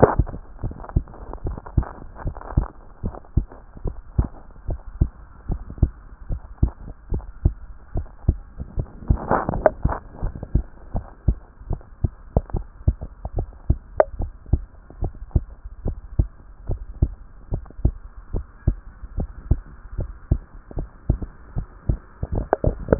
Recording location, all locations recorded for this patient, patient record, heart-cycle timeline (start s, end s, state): tricuspid valve (TV)
aortic valve (AV)+pulmonary valve (PV)+tricuspid valve (TV)+mitral valve (MV)
#Age: Child
#Sex: Female
#Height: 134.0 cm
#Weight: 29.4 kg
#Pregnancy status: False
#Murmur: Absent
#Murmur locations: nan
#Most audible location: nan
#Systolic murmur timing: nan
#Systolic murmur shape: nan
#Systolic murmur grading: nan
#Systolic murmur pitch: nan
#Systolic murmur quality: nan
#Diastolic murmur timing: nan
#Diastolic murmur shape: nan
#Diastolic murmur grading: nan
#Diastolic murmur pitch: nan
#Diastolic murmur quality: nan
#Outcome: Normal
#Campaign: 2014 screening campaign
0.00	0.62	unannotated
0.62	0.74	S1
0.74	0.94	systole
0.94	1.04	S2
1.04	1.44	diastole
1.44	1.58	S1
1.58	1.76	systole
1.76	1.86	S2
1.86	2.24	diastole
2.24	2.36	S1
2.36	2.56	systole
2.56	2.68	S2
2.68	3.04	diastole
3.04	3.14	S1
3.14	3.36	systole
3.36	3.46	S2
3.46	3.84	diastole
3.84	3.96	S1
3.96	4.16	systole
4.16	4.28	S2
4.28	4.68	diastole
4.68	4.80	S1
4.80	5.00	systole
5.00	5.10	S2
5.10	5.48	diastole
5.48	5.60	S1
5.60	5.80	systole
5.80	5.92	S2
5.92	6.30	diastole
6.30	6.40	S1
6.40	6.60	systole
6.60	6.72	S2
6.72	7.12	diastole
7.12	7.24	S1
7.24	7.44	systole
7.44	7.54	S2
7.54	7.94	diastole
7.94	8.06	S1
8.06	8.26	systole
8.26	8.38	S2
8.38	8.76	diastole
8.76	8.88	S1
8.88	9.08	systole
9.08	9.20	S2
9.20	9.52	diastole
9.52	9.66	S1
9.66	9.84	systole
9.84	9.94	S2
9.94	10.22	diastole
10.22	10.34	S1
10.34	10.54	systole
10.54	10.64	S2
10.64	10.94	diastole
10.94	11.04	S1
11.04	11.26	systole
11.26	11.38	S2
11.38	11.68	diastole
11.68	11.80	S1
11.80	12.02	systole
12.02	12.12	S2
12.12	12.52	diastole
12.52	12.64	S1
12.64	12.86	systole
12.86	12.96	S2
12.96	13.36	diastole
13.36	13.48	S1
13.48	13.68	systole
13.68	13.78	S2
13.78	14.18	diastole
14.18	14.30	S1
14.30	14.52	systole
14.52	14.62	S2
14.62	15.00	diastole
15.00	15.12	S1
15.12	15.34	systole
15.34	15.44	S2
15.44	15.86	diastole
15.86	15.96	S1
15.96	16.18	systole
16.18	16.28	S2
16.28	16.68	diastole
16.68	16.80	S1
16.80	17.00	systole
17.00	17.12	S2
17.12	17.52	diastole
17.52	17.64	S1
17.64	17.82	systole
17.82	17.94	S2
17.94	18.34	diastole
18.34	18.44	S1
18.44	18.66	systole
18.66	18.78	S2
18.78	19.16	diastole
19.16	19.28	S1
19.28	19.50	systole
19.50	19.60	S2
19.60	19.98	diastole
19.98	20.10	S1
20.10	20.30	systole
20.30	20.42	S2
20.42	20.76	diastole
20.76	20.88	S1
20.88	21.08	systole
21.08	21.20	S2
21.20	21.56	diastole
21.56	21.66	S1
21.66	21.88	systole
21.88	22.00	S2
22.00	22.32	diastole
22.32	22.99	unannotated